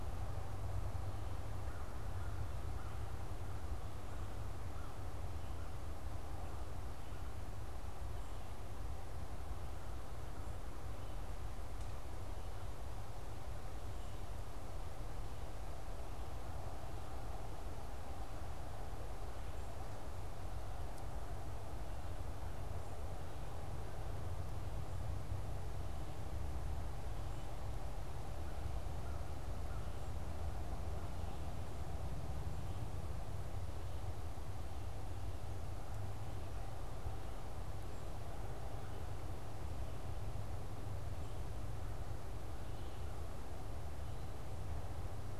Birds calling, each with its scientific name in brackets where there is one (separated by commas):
American Crow (Corvus brachyrhynchos)